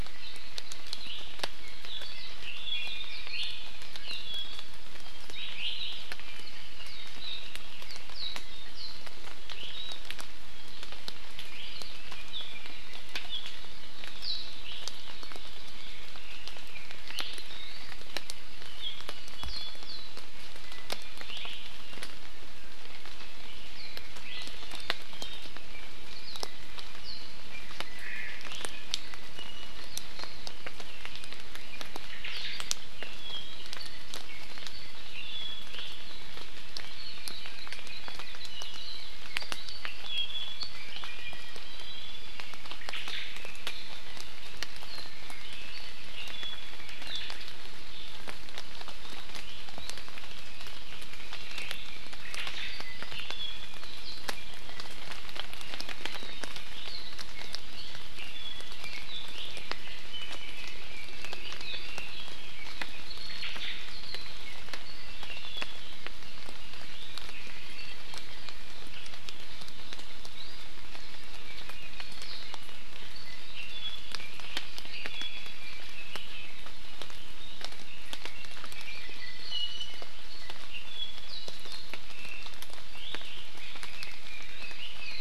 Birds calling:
Hawaii Akepa (Loxops coccineus), Red-billed Leiothrix (Leiothrix lutea), Iiwi (Drepanis coccinea), Apapane (Himatione sanguinea), Warbling White-eye (Zosterops japonicus), Omao (Myadestes obscurus)

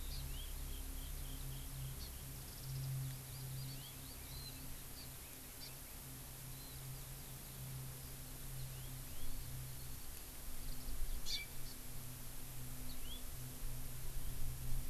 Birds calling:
Hawaii Amakihi (Chlorodrepanis virens), Black Francolin (Francolinus francolinus)

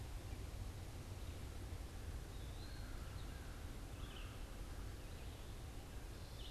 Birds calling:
American Crow (Corvus brachyrhynchos), Red-eyed Vireo (Vireo olivaceus), Eastern Wood-Pewee (Contopus virens)

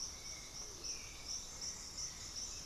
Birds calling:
Russet-backed Oropendola (Psarocolius angustifrons), Hauxwell's Thrush (Turdus hauxwelli)

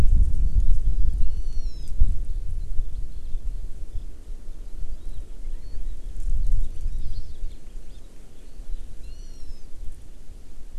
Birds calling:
Hawaii Amakihi (Chlorodrepanis virens), Hawaiian Hawk (Buteo solitarius)

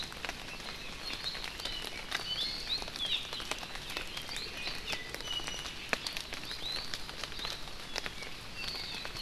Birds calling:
Apapane (Himatione sanguinea), Iiwi (Drepanis coccinea), Hawaii Amakihi (Chlorodrepanis virens)

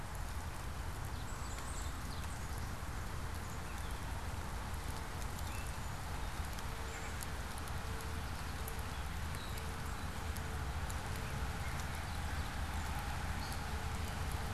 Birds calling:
Gray Catbird (Dumetella carolinensis), Common Yellowthroat (Geothlypis trichas)

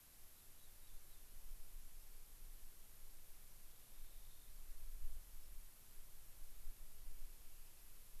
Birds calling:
Rock Wren (Salpinctes obsoletus)

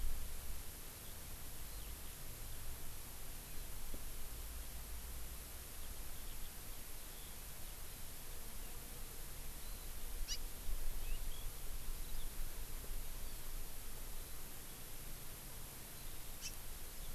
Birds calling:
Eurasian Skylark (Alauda arvensis), House Finch (Haemorhous mexicanus), Warbling White-eye (Zosterops japonicus)

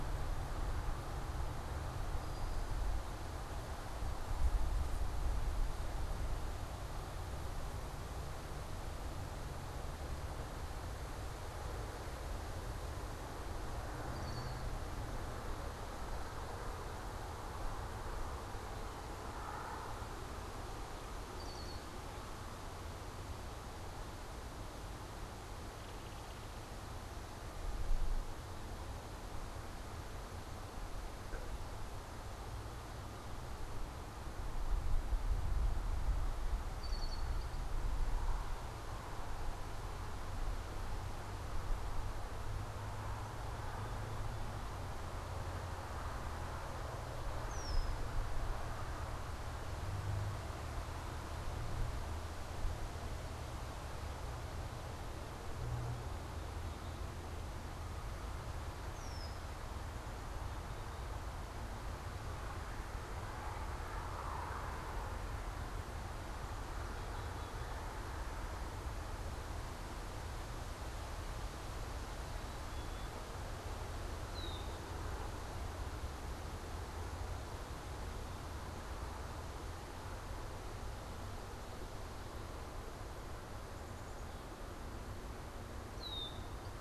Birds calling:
Black-capped Chickadee (Poecile atricapillus), Red-winged Blackbird (Agelaius phoeniceus), Brown-headed Cowbird (Molothrus ater)

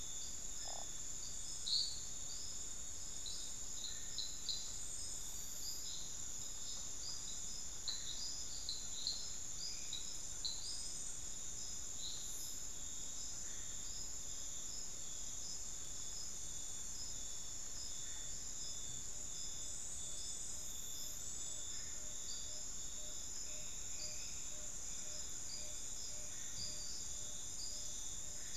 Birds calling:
Ferruginous Pygmy-Owl (Glaucidium brasilianum), Tawny-bellied Screech-Owl (Megascops watsonii)

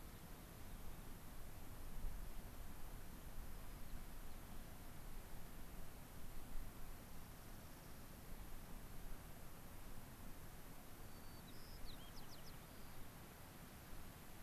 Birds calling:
White-crowned Sparrow (Zonotrichia leucophrys), Dark-eyed Junco (Junco hyemalis)

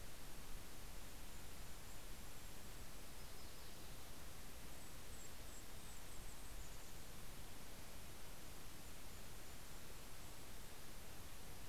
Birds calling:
Mountain Chickadee (Poecile gambeli), Golden-crowned Kinglet (Regulus satrapa), Yellow-rumped Warbler (Setophaga coronata)

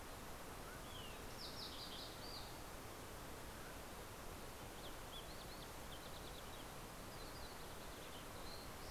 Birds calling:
Mountain Quail (Oreortyx pictus), Fox Sparrow (Passerella iliaca)

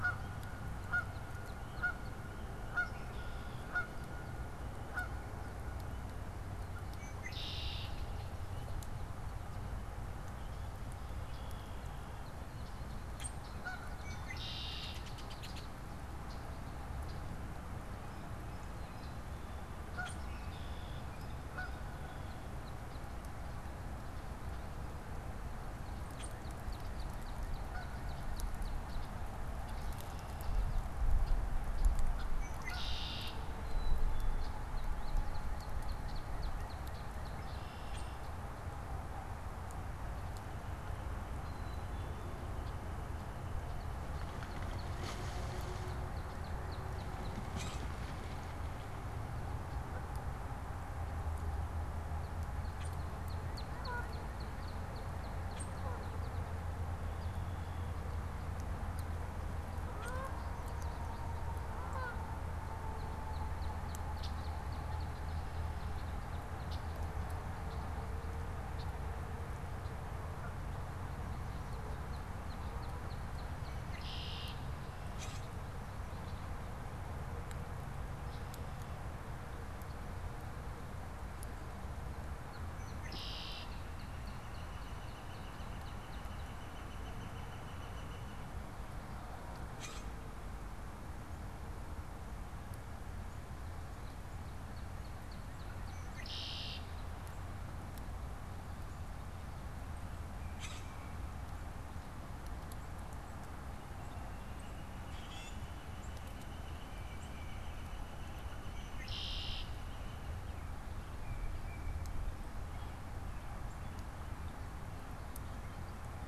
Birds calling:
Black-capped Chickadee (Poecile atricapillus), Northern Flicker (Colaptes auratus), Canada Goose (Branta canadensis), American Goldfinch (Spinus tristis), Common Grackle (Quiscalus quiscula), Tufted Titmouse (Baeolophus bicolor), Northern Cardinal (Cardinalis cardinalis), Blue Jay (Cyanocitta cristata), Red-winged Blackbird (Agelaius phoeniceus)

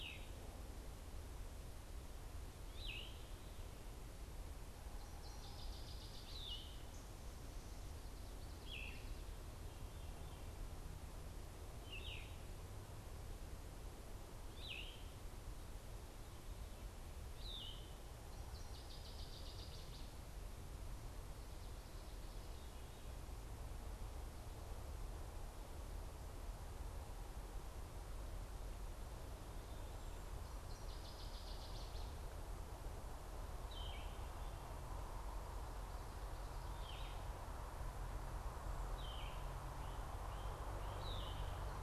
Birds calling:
Northern Waterthrush (Parkesia noveboracensis), Yellow-throated Vireo (Vireo flavifrons)

